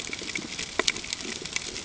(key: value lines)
label: ambient
recorder: HydroMoth